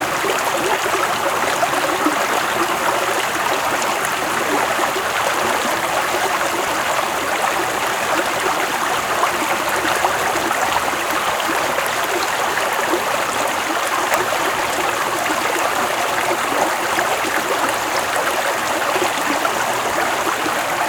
Has the kettle boiled?
no